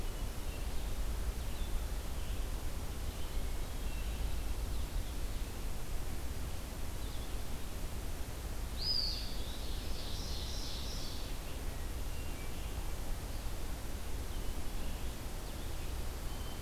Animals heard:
Red-eyed Vireo (Vireo olivaceus), Blue-headed Vireo (Vireo solitarius), Hermit Thrush (Catharus guttatus), Ovenbird (Seiurus aurocapilla), Eastern Wood-Pewee (Contopus virens)

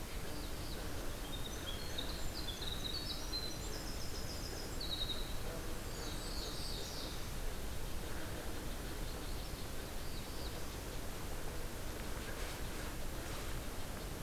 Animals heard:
Magnolia Warbler (Setophaga magnolia), Winter Wren (Troglodytes hiemalis), Blackburnian Warbler (Setophaga fusca), Black-throated Blue Warbler (Setophaga caerulescens)

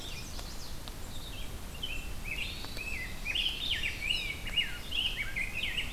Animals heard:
Hermit Thrush (Catharus guttatus), Red-eyed Vireo (Vireo olivaceus), Chestnut-sided Warbler (Setophaga pensylvanica), Rose-breasted Grosbeak (Pheucticus ludovicianus)

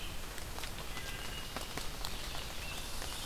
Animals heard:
Red-eyed Vireo (Vireo olivaceus), Scarlet Tanager (Piranga olivacea), Red Squirrel (Tamiasciurus hudsonicus), Wood Thrush (Hylocichla mustelina)

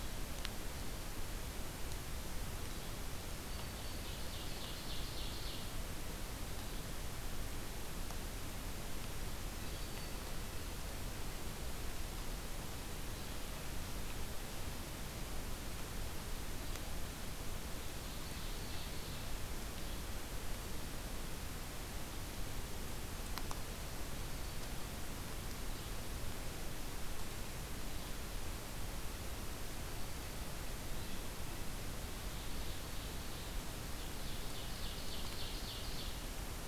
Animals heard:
Yellow-bellied Flycatcher (Empidonax flaviventris), Black-throated Green Warbler (Setophaga virens), Ovenbird (Seiurus aurocapilla)

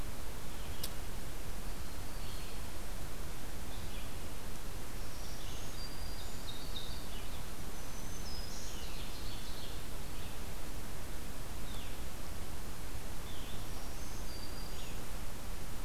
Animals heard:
Black-throated Green Warbler (Setophaga virens), Ovenbird (Seiurus aurocapilla), Black-throated Blue Warbler (Setophaga caerulescens), Red-eyed Vireo (Vireo olivaceus)

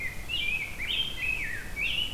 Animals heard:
Rose-breasted Grosbeak (Pheucticus ludovicianus), Blue-headed Vireo (Vireo solitarius)

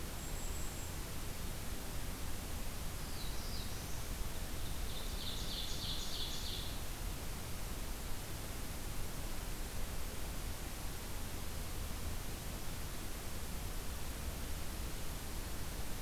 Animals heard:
Golden-crowned Kinglet (Regulus satrapa), Ovenbird (Seiurus aurocapilla), Black-throated Blue Warbler (Setophaga caerulescens)

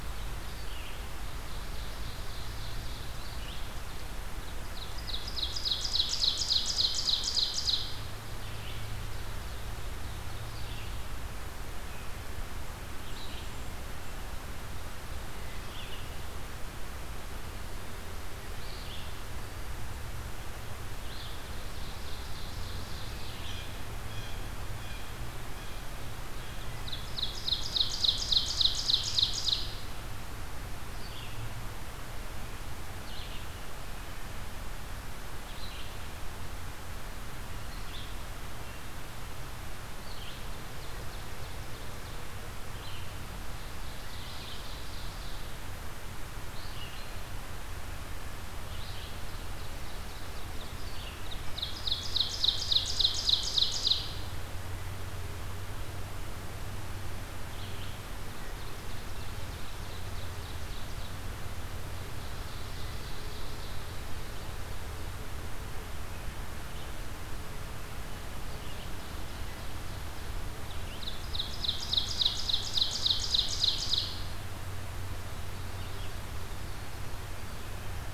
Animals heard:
Ovenbird (Seiurus aurocapilla), Red-eyed Vireo (Vireo olivaceus), Blue Jay (Cyanocitta cristata)

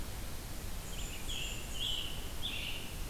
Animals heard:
Black-and-white Warbler (Mniotilta varia), Scarlet Tanager (Piranga olivacea)

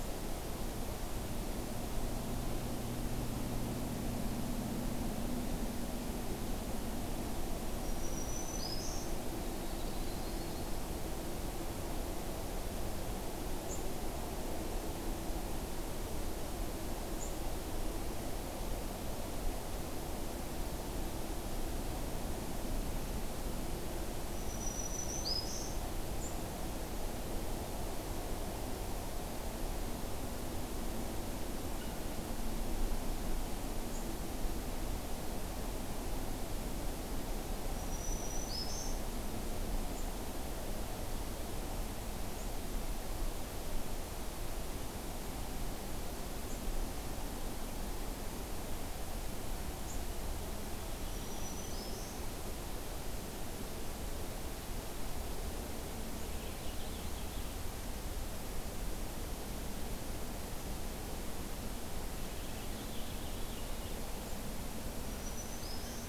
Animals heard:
Purple Finch (Haemorhous purpureus), Yellow-rumped Warbler (Setophaga coronata), Black-throated Green Warbler (Setophaga virens)

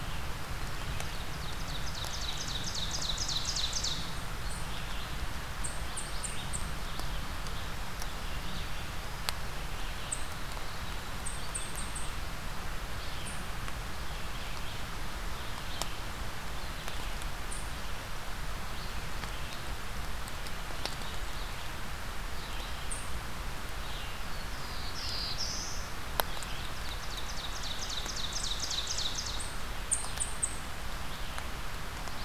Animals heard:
Red-eyed Vireo (Vireo olivaceus), Ovenbird (Seiurus aurocapilla), unidentified call, Black-throated Blue Warbler (Setophaga caerulescens)

